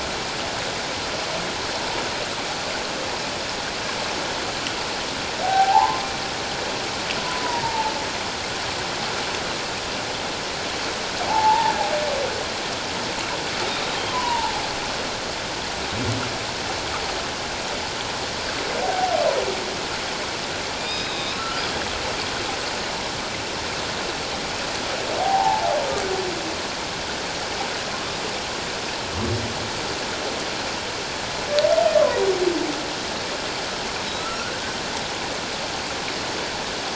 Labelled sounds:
5.4	6.0	humpback whale, 0.78 to 1.6 kHz
7.4	7.9	humpback whale, 0.81 to 1.0 kHz
11.3	11.7	humpback whale, 0.78 to 1.0 kHz
14.1	14.6	humpback whale, 0.78 to 1.1 kHz
20.8	21.6	humpback whale, 1.3 to 5.1 kHz
25.2	25.7	humpback whale, 0.78 to 1.1 kHz
34.2	34.5	humpback whale, 1.2 to 1.5 kHz

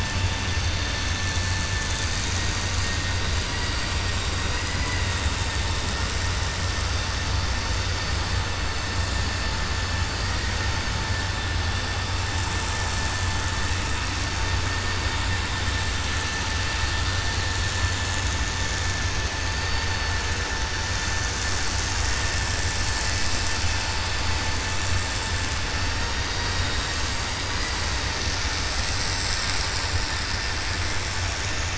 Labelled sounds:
4.4	5.1	vessel noise, 0.99 to 2.9 kHz

